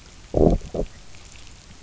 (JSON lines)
{"label": "biophony, low growl", "recorder": "SoundTrap 300"}